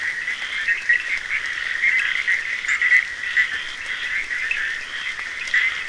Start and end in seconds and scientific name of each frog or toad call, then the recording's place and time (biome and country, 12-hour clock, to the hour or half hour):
0.0	1.8	Scinax perereca
0.0	5.8	Boana bischoffi
0.0	5.8	Sphaenorhynchus surdus
2.5	4.9	Scinax perereca
5.3	5.8	Scinax perereca
Atlantic Forest, Brazil, ~1am